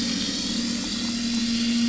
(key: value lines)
label: anthrophony, boat engine
recorder: SoundTrap 500